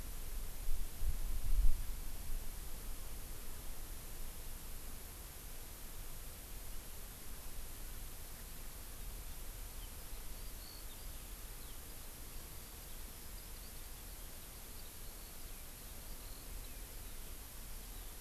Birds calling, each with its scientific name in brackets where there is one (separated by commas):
Eurasian Skylark (Alauda arvensis)